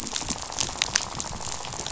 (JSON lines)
{"label": "biophony, rattle", "recorder": "SoundTrap 500"}